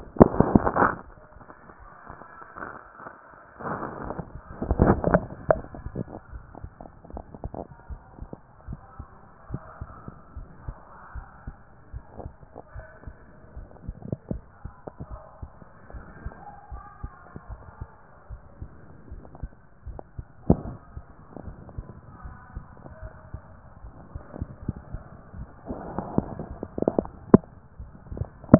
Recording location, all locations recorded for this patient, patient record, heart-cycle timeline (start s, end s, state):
tricuspid valve (TV)
pulmonary valve (PV)+tricuspid valve (TV)+mitral valve (MV)
#Age: nan
#Sex: Female
#Height: nan
#Weight: nan
#Pregnancy status: True
#Murmur: Absent
#Murmur locations: nan
#Most audible location: nan
#Systolic murmur timing: nan
#Systolic murmur shape: nan
#Systolic murmur grading: nan
#Systolic murmur pitch: nan
#Systolic murmur quality: nan
#Diastolic murmur timing: nan
#Diastolic murmur shape: nan
#Diastolic murmur grading: nan
#Diastolic murmur pitch: nan
#Diastolic murmur quality: nan
#Outcome: Normal
#Campaign: 2014 screening campaign
0.00	15.82	unannotated
15.82	15.94	diastole
15.94	16.06	S1
16.06	16.22	systole
16.22	16.33	S2
16.33	16.70	diastole
16.70	16.85	S1
16.85	17.03	systole
17.03	17.13	S2
17.13	17.50	diastole
17.50	17.62	S1
17.62	17.80	systole
17.80	17.90	S2
17.90	18.30	diastole
18.30	18.41	S1
18.41	18.61	systole
18.61	18.71	S2
18.71	19.11	diastole
19.11	19.22	S1
19.22	19.43	systole
19.43	19.53	S2
19.53	19.87	diastole
19.87	19.99	S1
19.99	20.17	systole
20.17	20.27	S2
20.27	20.65	diastole
20.65	28.59	unannotated